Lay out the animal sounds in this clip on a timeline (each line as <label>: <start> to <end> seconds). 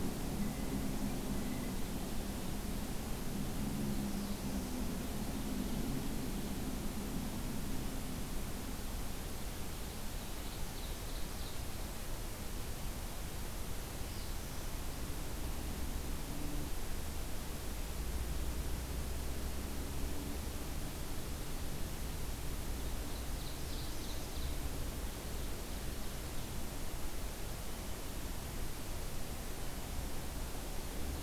Black-throated Blue Warbler (Setophaga caerulescens): 3.6 to 4.8 seconds
Ovenbird (Seiurus aurocapilla): 10.2 to 11.7 seconds
Black-throated Blue Warbler (Setophaga caerulescens): 13.7 to 14.7 seconds
Ovenbird (Seiurus aurocapilla): 22.8 to 24.6 seconds
Black-throated Blue Warbler (Setophaga caerulescens): 23.2 to 24.4 seconds